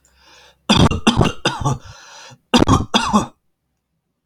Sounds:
Cough